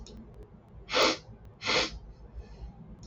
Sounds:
Sniff